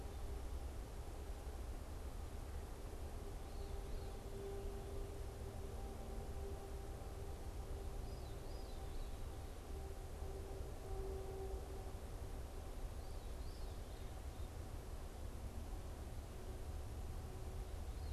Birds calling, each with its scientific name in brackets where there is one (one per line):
Veery (Catharus fuscescens)